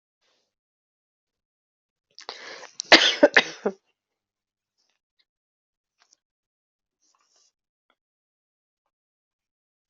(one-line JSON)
{"expert_labels": [{"quality": "good", "cough_type": "dry", "dyspnea": false, "wheezing": false, "stridor": false, "choking": false, "congestion": false, "nothing": true, "diagnosis": "healthy cough", "severity": "pseudocough/healthy cough"}], "age": 34, "gender": "female", "respiratory_condition": false, "fever_muscle_pain": false, "status": "COVID-19"}